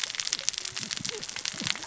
{"label": "biophony, cascading saw", "recorder": "SoundTrap 600 or HydroMoth"}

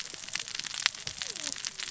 {"label": "biophony, cascading saw", "recorder": "SoundTrap 600 or HydroMoth"}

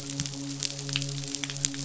{"label": "biophony, midshipman", "recorder": "SoundTrap 500"}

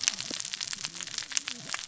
{"label": "biophony, cascading saw", "recorder": "SoundTrap 600 or HydroMoth"}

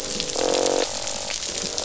{"label": "biophony, croak", "recorder": "SoundTrap 500"}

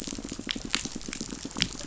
{"label": "biophony, pulse", "recorder": "SoundTrap 500"}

